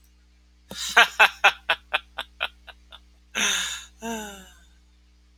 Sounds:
Laughter